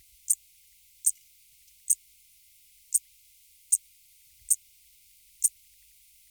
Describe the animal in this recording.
Eupholidoptera schmidti, an orthopteran